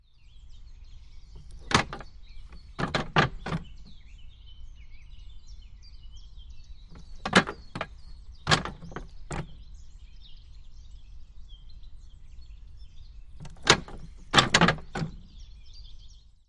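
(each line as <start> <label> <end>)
0.0 Birds chirping in the distance. 16.5
1.6 A railroad switch makes repeated low mechanical noises on wood. 2.0
2.8 A railroad switch makes repeated low mechanical noises on wood. 3.6
7.2 A railroad switch makes repeated low mechanical noises on wood. 7.9
8.5 A railroad switch makes repeated low mechanical noises on wood. 9.5
13.7 A railroad switch makes repeated low mechanical noises on wood. 15.1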